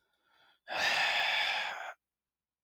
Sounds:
Sigh